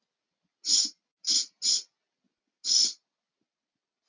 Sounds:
Sniff